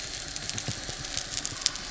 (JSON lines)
{"label": "biophony", "recorder": "SoundTrap 300"}
{"label": "anthrophony, boat engine", "recorder": "SoundTrap 300"}